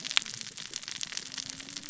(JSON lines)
{"label": "biophony, cascading saw", "recorder": "SoundTrap 600 or HydroMoth"}